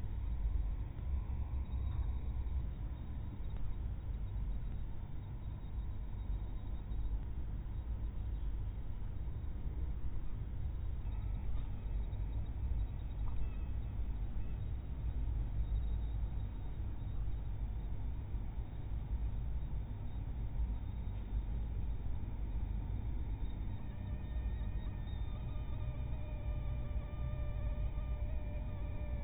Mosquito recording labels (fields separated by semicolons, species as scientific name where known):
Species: mosquito; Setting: cup